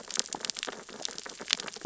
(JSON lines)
{"label": "biophony, sea urchins (Echinidae)", "recorder": "SoundTrap 600 or HydroMoth"}